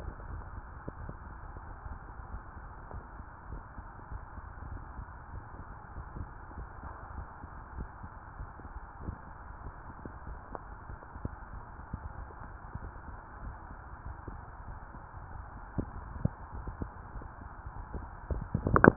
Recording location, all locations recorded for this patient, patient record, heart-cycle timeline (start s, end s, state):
tricuspid valve (TV)
aortic valve (AV)+pulmonary valve (PV)+tricuspid valve (TV)
#Age: nan
#Sex: Female
#Height: nan
#Weight: nan
#Pregnancy status: True
#Murmur: Absent
#Murmur locations: nan
#Most audible location: nan
#Systolic murmur timing: nan
#Systolic murmur shape: nan
#Systolic murmur grading: nan
#Systolic murmur pitch: nan
#Systolic murmur quality: nan
#Diastolic murmur timing: nan
#Diastolic murmur shape: nan
#Diastolic murmur grading: nan
#Diastolic murmur pitch: nan
#Diastolic murmur quality: nan
#Outcome: Normal
#Campaign: 2015 screening campaign
0.00	0.28	diastole
0.28	0.44	S1
0.44	0.52	systole
0.52	0.66	S2
0.66	1.00	diastole
1.00	1.14	S1
1.14	1.20	systole
1.21	1.31	S2
1.31	1.64	diastole
1.64	1.76	S1
1.76	1.84	systole
1.84	1.98	S2
1.98	2.32	diastole
2.32	2.46	S1
2.46	2.56	systole
2.56	2.64	S2
2.64	2.94	diastole
2.94	3.04	S1
3.04	3.14	systole
3.14	3.24	S2
3.24	3.48	diastole
3.48	3.62	S1
3.62	3.72	systole
3.72	3.86	S2
3.86	4.12	diastole
4.12	4.22	S1
4.22	4.28	systole
4.28	4.36	S2
4.36	4.66	diastole
4.66	4.82	S1
4.82	4.90	systole
4.90	5.06	S2
5.06	5.32	diastole
5.32	5.43	S1
5.43	5.54	systole
5.54	5.64	S2
5.64	5.94	diastole
5.94	6.06	S1
6.06	6.16	systole
6.16	6.28	S2
6.28	6.56	diastole
6.56	6.68	S1
6.68	6.74	systole
6.74	6.82	S2
6.82	7.14	diastole
7.14	7.26	S1
7.26	7.36	systole
7.36	7.48	S2
7.48	7.76	diastole
7.76	7.88	S1
7.88	8.02	systole
8.02	8.10	S2
8.10	8.38	diastole
8.38	8.50	S1
8.50	8.60	systole
8.60	8.72	S2
8.72	9.02	diastole